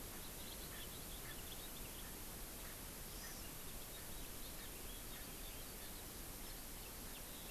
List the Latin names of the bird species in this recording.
Pternistis erckelii, Chlorodrepanis virens, Haemorhous mexicanus